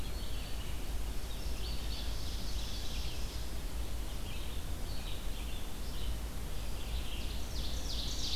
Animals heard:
Indigo Bunting (Passerina cyanea), Ovenbird (Seiurus aurocapilla), Red-eyed Vireo (Vireo olivaceus), Eastern Wood-Pewee (Contopus virens)

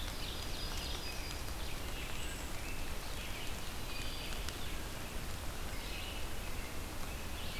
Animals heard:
Ovenbird (Seiurus aurocapilla), American Robin (Turdus migratorius), Red-eyed Vireo (Vireo olivaceus), Yellow-rumped Warbler (Setophaga coronata)

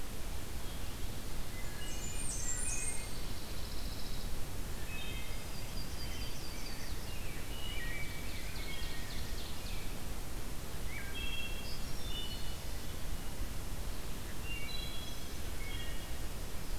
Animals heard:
Ovenbird (Seiurus aurocapilla), Yellow-rumped Warbler (Setophaga coronata), Blackburnian Warbler (Setophaga fusca), Wood Thrush (Hylocichla mustelina), Rose-breasted Grosbeak (Pheucticus ludovicianus), Pine Warbler (Setophaga pinus)

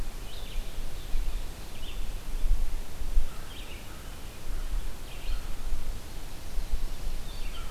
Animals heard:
American Crow (Corvus brachyrhynchos), Red-eyed Vireo (Vireo olivaceus)

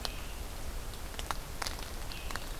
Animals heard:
Scarlet Tanager (Piranga olivacea)

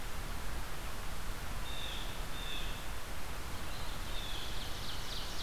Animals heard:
Blue Jay (Cyanocitta cristata), Ovenbird (Seiurus aurocapilla)

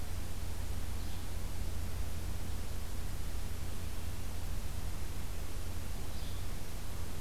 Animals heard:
Yellow-bellied Flycatcher (Empidonax flaviventris)

